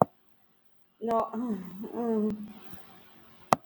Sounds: Sigh